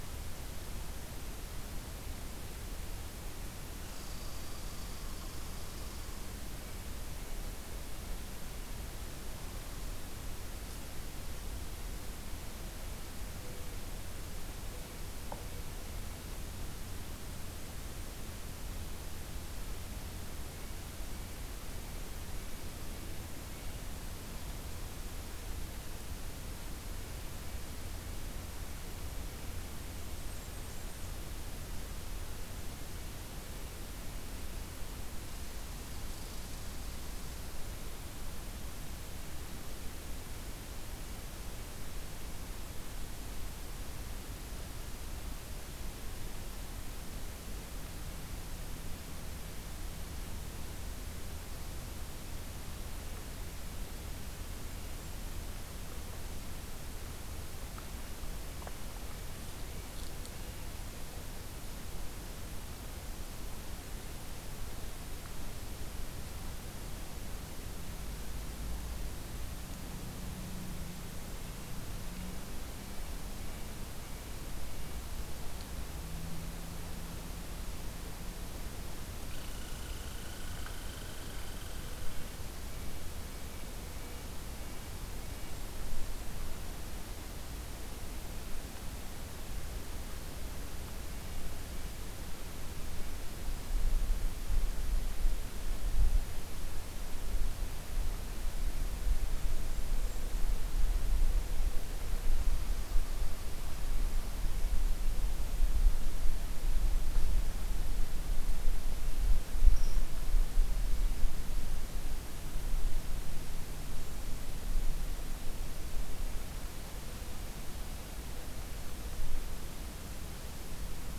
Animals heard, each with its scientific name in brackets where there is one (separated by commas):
Red Squirrel (Tamiasciurus hudsonicus), Red-breasted Nuthatch (Sitta canadensis), Blackburnian Warbler (Setophaga fusca)